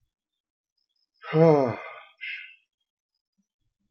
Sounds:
Sigh